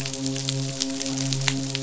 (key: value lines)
label: biophony, midshipman
recorder: SoundTrap 500